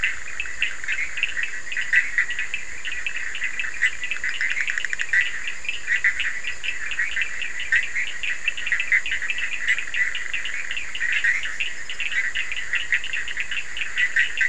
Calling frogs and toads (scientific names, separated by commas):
Boana bischoffi, Sphaenorhynchus surdus